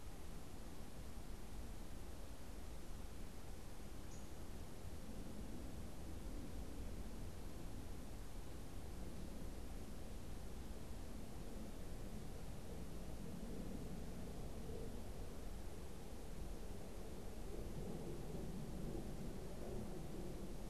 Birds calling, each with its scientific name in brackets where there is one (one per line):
Downy Woodpecker (Dryobates pubescens)